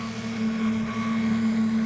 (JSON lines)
{"label": "anthrophony, boat engine", "recorder": "SoundTrap 500"}